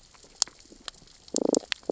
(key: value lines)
label: biophony, damselfish
recorder: SoundTrap 600 or HydroMoth